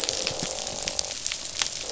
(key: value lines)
label: biophony, croak
recorder: SoundTrap 500